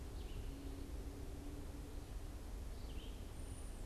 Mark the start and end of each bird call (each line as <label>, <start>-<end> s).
Red-eyed Vireo (Vireo olivaceus), 0.0-3.9 s
unidentified bird, 3.2-3.9 s